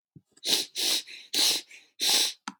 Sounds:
Sniff